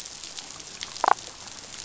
{"label": "biophony, damselfish", "recorder": "SoundTrap 500"}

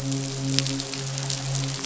{"label": "biophony, midshipman", "recorder": "SoundTrap 500"}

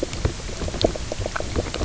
{"label": "biophony, knock croak", "recorder": "SoundTrap 300"}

